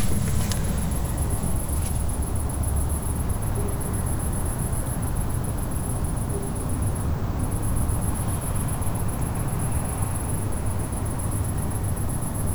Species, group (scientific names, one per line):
Tettigonia viridissima
Orthoptera